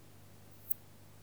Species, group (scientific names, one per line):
Poecilimon affinis
Orthoptera